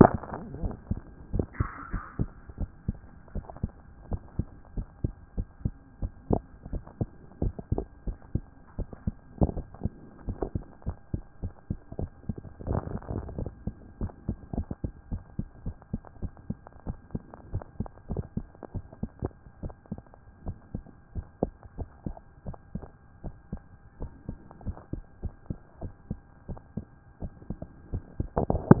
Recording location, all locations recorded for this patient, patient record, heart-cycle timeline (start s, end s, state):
tricuspid valve (TV)
pulmonary valve (PV)+tricuspid valve (TV)+mitral valve (MV)
#Age: Child
#Sex: Female
#Height: 127.0 cm
#Weight: 24.5 kg
#Pregnancy status: False
#Murmur: Absent
#Murmur locations: nan
#Most audible location: nan
#Systolic murmur timing: nan
#Systolic murmur shape: nan
#Systolic murmur grading: nan
#Systolic murmur pitch: nan
#Systolic murmur quality: nan
#Diastolic murmur timing: nan
#Diastolic murmur shape: nan
#Diastolic murmur grading: nan
#Diastolic murmur pitch: nan
#Diastolic murmur quality: nan
#Outcome: Normal
#Campaign: 2014 screening campaign
0.00	1.20	unannotated
1.20	1.32	diastole
1.32	1.46	S1
1.46	1.58	systole
1.58	1.68	S2
1.68	1.92	diastole
1.92	2.04	S1
2.04	2.18	systole
2.18	2.30	S2
2.30	2.58	diastole
2.58	2.70	S1
2.70	2.86	systole
2.86	2.98	S2
2.98	3.34	diastole
3.34	3.46	S1
3.46	3.62	systole
3.62	3.72	S2
3.72	4.10	diastole
4.10	4.22	S1
4.22	4.38	systole
4.38	4.46	S2
4.46	4.76	diastole
4.76	4.88	S1
4.88	5.02	systole
5.02	5.14	S2
5.14	5.36	diastole
5.36	5.48	S1
5.48	5.64	systole
5.64	5.74	S2
5.74	6.00	diastole
6.00	6.12	S1
6.12	6.30	systole
6.30	6.42	S2
6.42	6.72	diastole
6.72	6.82	S1
6.82	7.00	systole
7.00	7.08	S2
7.08	7.42	diastole
7.42	7.54	S1
7.54	7.72	systole
7.72	7.84	S2
7.84	8.08	diastole
8.08	8.18	S1
8.18	8.34	systole
8.34	8.44	S2
8.44	8.78	diastole
8.78	8.88	S1
8.88	9.06	systole
9.06	9.14	S2
9.14	9.40	diastole
9.40	9.56	S1
9.56	9.82	systole
9.82	9.92	S2
9.92	10.26	diastole
10.26	10.38	S1
10.38	10.54	systole
10.54	10.64	S2
10.64	10.86	diastole
10.86	10.96	S1
10.96	11.12	systole
11.12	11.22	S2
11.22	11.42	diastole
11.42	11.54	S1
11.54	11.70	systole
11.70	11.78	S2
11.78	11.98	diastole
11.98	12.10	S1
12.10	12.28	systole
12.28	12.36	S2
12.36	12.66	diastole
12.66	12.82	S1
12.82	12.92	systole
12.92	13.00	S2
13.00	13.38	diastole
13.38	13.50	S1
13.50	13.66	systole
13.66	13.74	S2
13.74	14.00	diastole
14.00	14.12	S1
14.12	14.28	systole
14.28	14.38	S2
14.38	14.56	diastole
14.56	14.68	S1
14.68	14.82	systole
14.82	14.92	S2
14.92	15.10	diastole
15.10	15.22	S1
15.22	15.38	systole
15.38	15.48	S2
15.48	15.64	diastole
15.64	15.76	S1
15.76	15.92	systole
15.92	16.02	S2
16.02	16.22	diastole
16.22	16.32	S1
16.32	16.48	systole
16.48	16.58	S2
16.58	16.86	diastole
16.86	16.98	S1
16.98	17.14	systole
17.14	17.22	S2
17.22	17.52	diastole
17.52	17.64	S1
17.64	17.78	systole
17.78	17.88	S2
17.88	18.10	diastole
18.10	18.24	S1
18.24	18.36	systole
18.36	18.48	S2
18.48	18.74	diastole
18.74	28.80	unannotated